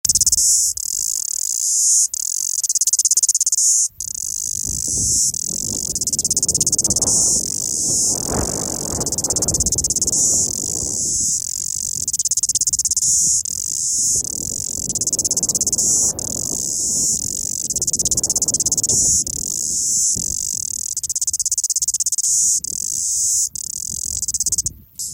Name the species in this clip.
Amphipsalta cingulata